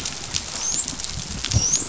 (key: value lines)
label: biophony, dolphin
recorder: SoundTrap 500